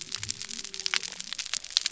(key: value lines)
label: biophony
recorder: SoundTrap 300